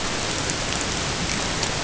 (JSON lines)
{"label": "ambient", "recorder": "HydroMoth"}